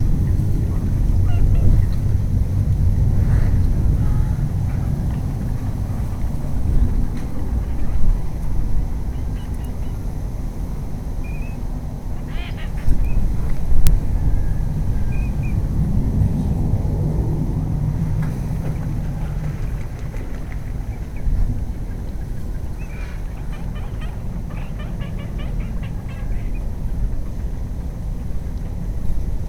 Is there a bird flapping its wings?
yes